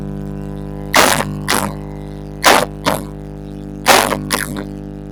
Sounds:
Cough